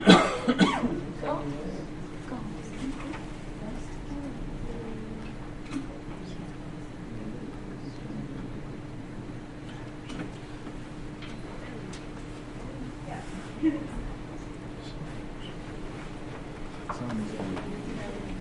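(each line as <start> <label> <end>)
0.0 A man coughs loudly and repeatedly. 1.0
1.2 People talking quietly in the distance. 8.6
13.0 People talking quietly in the distance. 18.4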